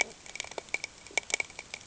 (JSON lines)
{"label": "ambient", "recorder": "HydroMoth"}